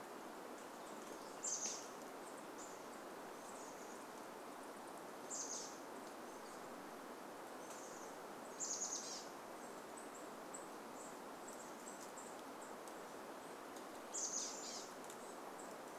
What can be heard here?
Chestnut-backed Chickadee call